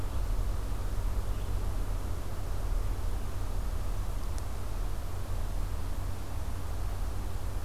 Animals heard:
forest ambience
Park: Acadia National Park